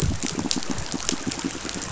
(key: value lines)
label: biophony, pulse
recorder: SoundTrap 500